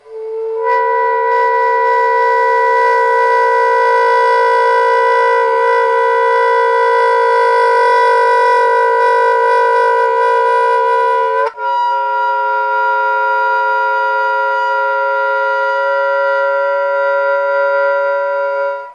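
0.5s A disturbing saxophone sound. 11.5s

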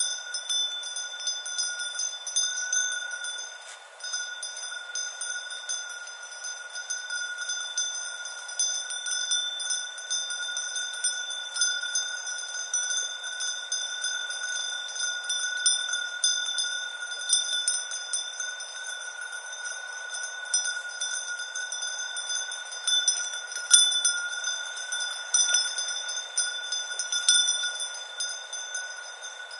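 0.0s Bells ringing repeatedly with a high-pitched sound. 29.6s

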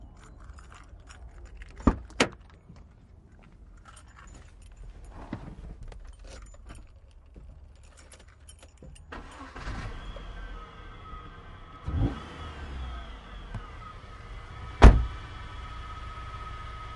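0.0s Keys clanking. 1.8s
1.9s A car door is being opened. 2.3s
4.0s Keys clanking. 9.0s
9.1s A car engine starts. 10.3s
11.8s The car exhaust is making noise. 13.7s
14.8s A car door is closing. 15.2s
15.2s Car engine running. 17.0s

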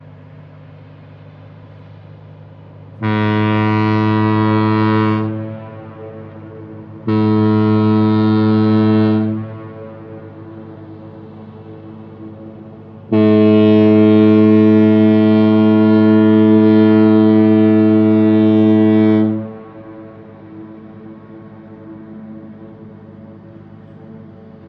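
0.0s Sound echoing. 2.9s
2.9s A loud foghorn honks, signaling a ship’s presence in the harbor amidst fog. 5.6s
5.8s Sound echoing. 6.9s
6.9s A loud foghorn honks, signaling a ship’s presence in the harbor amidst fog. 9.5s
9.5s Sound echoing. 12.8s
12.9s A loud foghorn honks, signaling a ship’s presence in the harbor amidst fog. 19.7s
19.8s Sound echoing. 24.7s

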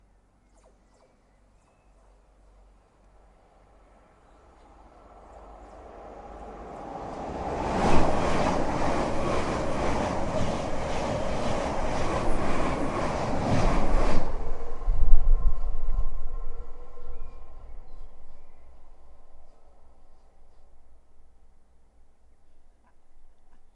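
0.2s An electric train passes by with a fast clattering sound followed by a fading metallic rumble. 23.8s

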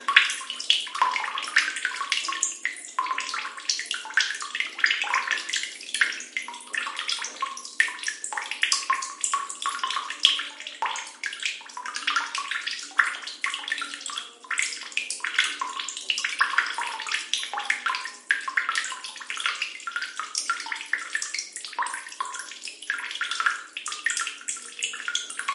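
0.0s A faucet drips steadily indoors. 25.4s

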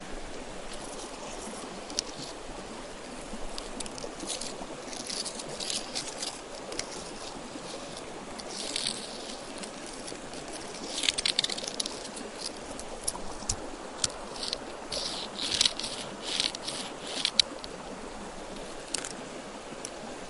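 0.0s A river flows in the background. 20.3s

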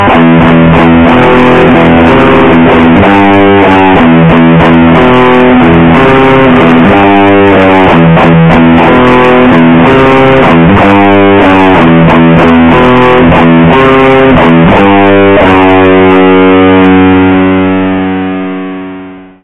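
0.1s An electric guitar plays heavy metal riffs continuously. 19.4s

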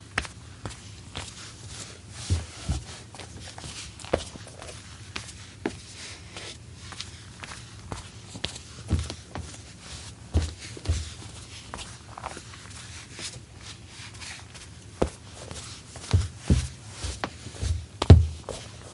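0.0s Footsteps. 18.9s

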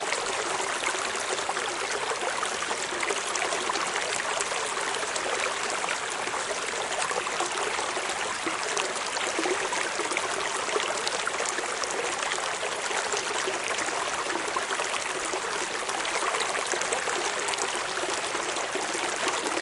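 0.0s A river flows with water splashing at a nearly constant volume. 19.6s

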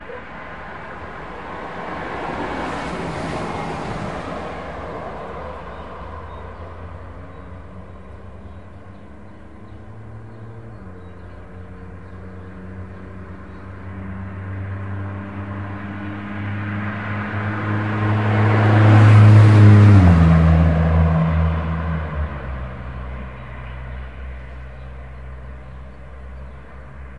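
0.0s The engine of a vehicle is running. 15.4s
15.4s A car speeding by. 22.3s
22.4s The engine of a vehicle is running. 27.2s

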